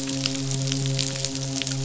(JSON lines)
{"label": "biophony, midshipman", "recorder": "SoundTrap 500"}